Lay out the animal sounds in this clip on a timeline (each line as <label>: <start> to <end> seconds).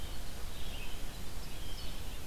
Blue Jay (Cyanocitta cristata): 0.0 to 2.3 seconds
Red-eyed Vireo (Vireo olivaceus): 0.0 to 2.3 seconds
Winter Wren (Troglodytes hiemalis): 0.0 to 2.3 seconds